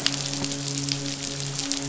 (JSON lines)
{"label": "biophony, midshipman", "recorder": "SoundTrap 500"}